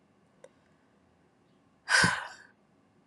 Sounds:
Sigh